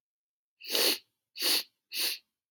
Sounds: Sniff